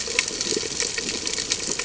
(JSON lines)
{"label": "ambient", "recorder": "HydroMoth"}